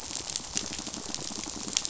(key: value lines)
label: biophony, pulse
recorder: SoundTrap 500